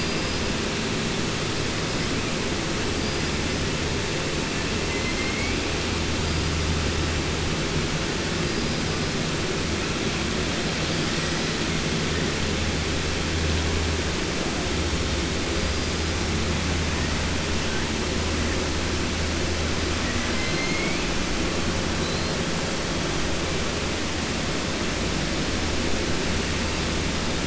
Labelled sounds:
4.9	5.6	killer whale, 1.5 to 3.1 kHz
20.0	21.0	killer whale, 1.2 to 4.3 kHz

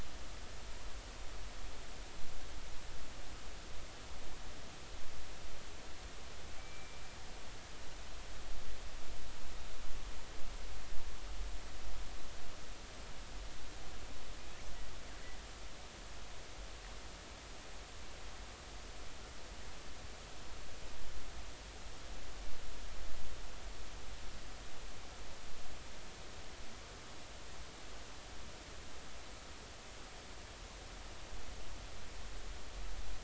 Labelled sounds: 6.6	7.0	killer whale, northern resident, G clan, call N24ii, 2.2 to 2.4 kHz

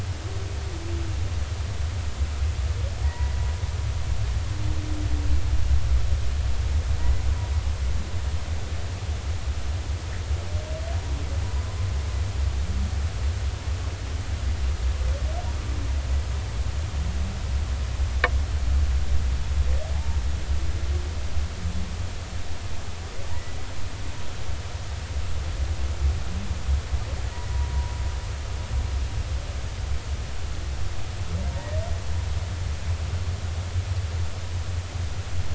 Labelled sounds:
3.0	3.4	humpback whale, 0.90 to 2.0 kHz
19.9	20.2	humpback whale, 0.80 to 0.96 kHz
23.3	23.6	humpback whale, 1.8 to 2.0 kHz

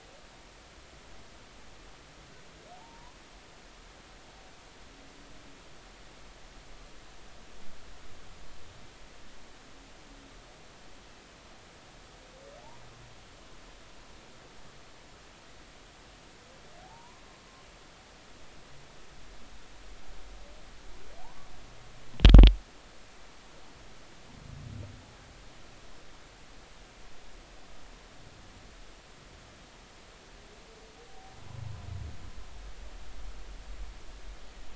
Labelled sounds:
2.7	3.2	humpback whale, 0.80 to 1.1 kHz
16.8	17.2	humpback whale, 0.80 to 1.1 kHz
21.2	21.5	humpback whale, 0.80 to 1.2 kHz

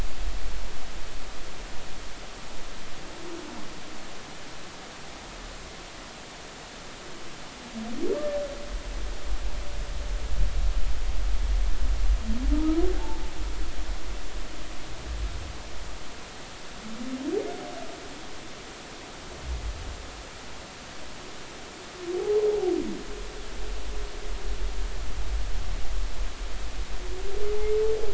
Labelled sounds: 12.9	13.2	humpback whale, 0.80 to 0.96 kHz
22.2	22.4	humpback whale, 0.80 to 0.90 kHz

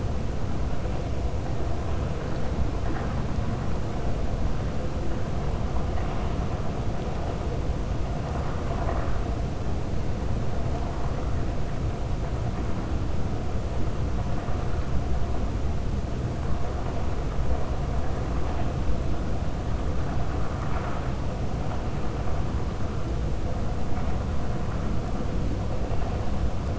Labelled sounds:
8.3	9.2	vessel noise, 0.55 to 2.2 kHz

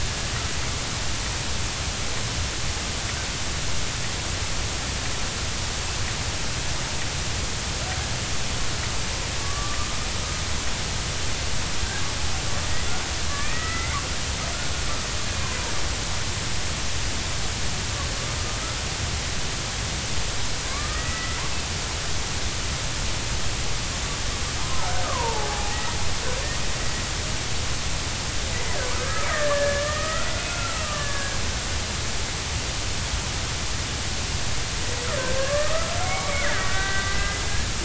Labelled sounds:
9.4	9.9	killer whale, Bigg's (transient), 1.1 to 1.2 kHz
13.3	14.0	killer whale, Bigg's (transient), 1.2 to 2.2 kHz
20.6	21.4	killer whale, Bigg's (transient), 0.99 to 2.0 kHz
24.6	26.0	killer whale, Bigg's (transient), 0.80 to 2.0 kHz
28.9	31.4	killer whale, Bigg's (transient), 0.99 to 2.6 kHz
35.2	37.4	killer whale, Bigg's (transient), 1.0 to 2.4 kHz

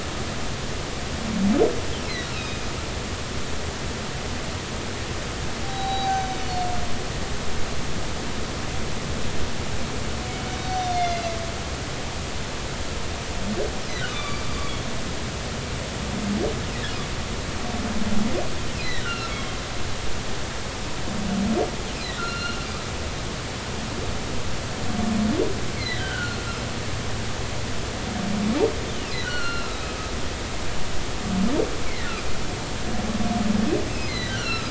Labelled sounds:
2.3	2.7	humpback whale, 2.4 to 3.8 kHz
5.6	6.7	humpback whale, 0.80 to 6.2 kHz
10.6	11.3	humpback whale, 2.0 to 6.0 kHz
14.1	14.9	humpback whale, 1.1 to 3.6 kHz
18.8	19.5	humpback whale, 1.3 to 4.2 kHz
22.2	22.6	humpback whale, 1.3 to 4.3 kHz
25.8	26.4	humpback whale, 1.3 to 4.3 kHz
29.2	30.1	humpback whale, 1.2 to 4.3 kHz
32.9	34.6	humpback whale, 1.2 to 4.3 kHz

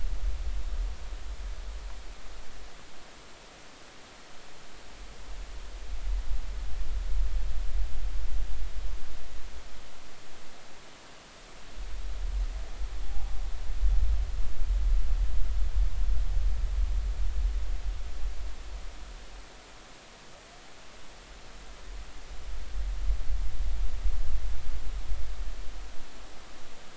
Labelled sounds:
13.0	13.4	humpback whale, 0.80 to 0.99 kHz

